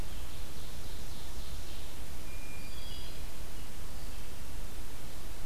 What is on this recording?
Ovenbird, Hermit Thrush, Black-throated Green Warbler